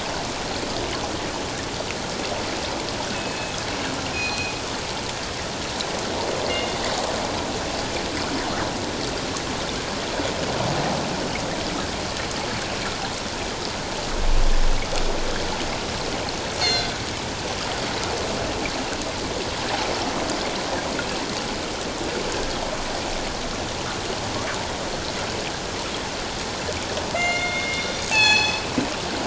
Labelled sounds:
3.1	3.5	killer whale, northern resident, G clan, call N24ii, 2.5 to 2.7 kHz
4.1	4.5	killer whale, northern resident, G clan, call N24ii, 2.4 to 4.2 kHz
6.4	6.7	killer whale, northern resident, G clan, call N24ii, 1.9 to 2.2 kHz
16.6	16.9	killer whale, northern resident, G clan, call N24ii, 2.0 to 4.5 kHz
27.1	28.6	killer whale, northern resident, G clan, call N24ii, 0.78 to 7.2 kHz

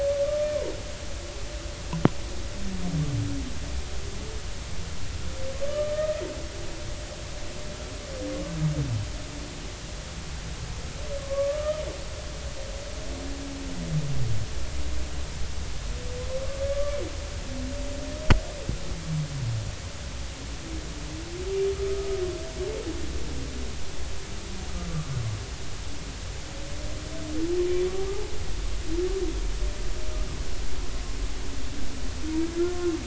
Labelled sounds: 0.2	0.5	humpback whale, 1.1 to 1.2 kHz
5.6	6.2	humpback whale, 1.1 to 3.1 kHz
11.2	11.8	humpback whale, 0.99 to 1.3 kHz
16.7	17.0	humpback whale, 1.1 to 1.2 kHz
24.8	25.1	humpback whale, 1.1 to 1.2 kHz

